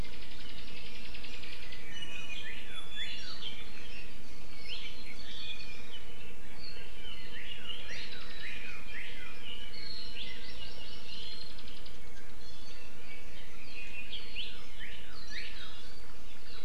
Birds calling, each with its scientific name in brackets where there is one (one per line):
Northern Cardinal (Cardinalis cardinalis)
Hawaii Amakihi (Chlorodrepanis virens)
Apapane (Himatione sanguinea)